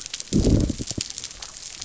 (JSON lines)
{"label": "biophony", "recorder": "SoundTrap 300"}